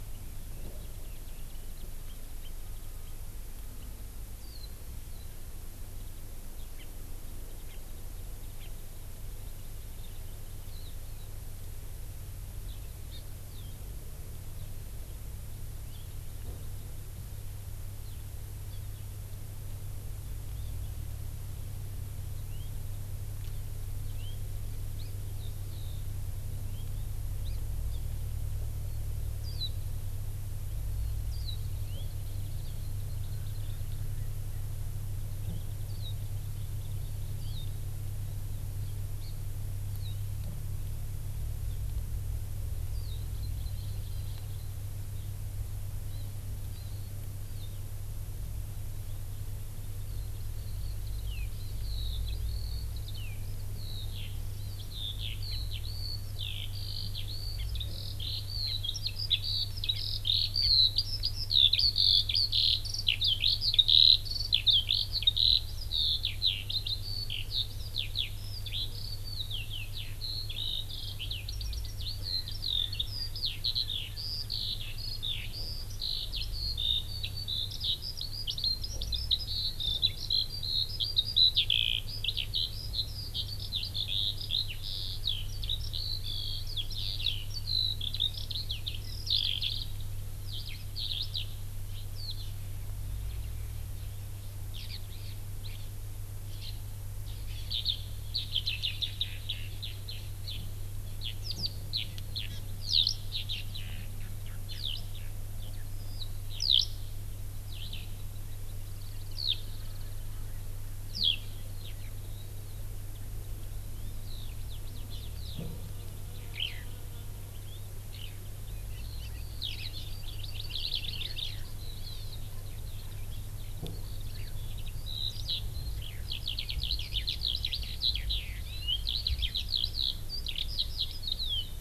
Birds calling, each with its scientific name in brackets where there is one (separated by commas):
Erckel's Francolin (Pternistis erckelii), House Finch (Haemorhous mexicanus), Hawaii Amakihi (Chlorodrepanis virens), Warbling White-eye (Zosterops japonicus), Eurasian Skylark (Alauda arvensis)